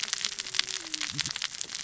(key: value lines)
label: biophony, cascading saw
recorder: SoundTrap 600 or HydroMoth